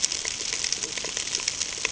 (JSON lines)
{"label": "ambient", "recorder": "HydroMoth"}